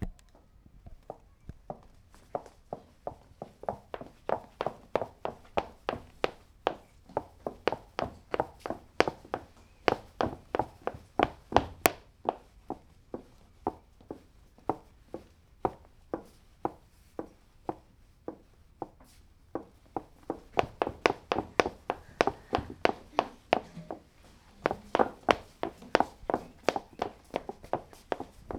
do the steps vary in quickness?
yes